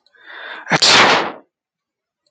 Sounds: Sneeze